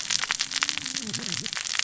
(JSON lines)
{"label": "biophony, cascading saw", "recorder": "SoundTrap 600 or HydroMoth"}